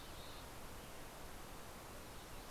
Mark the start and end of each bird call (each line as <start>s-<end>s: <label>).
0.0s-2.5s: Mountain Chickadee (Poecile gambeli)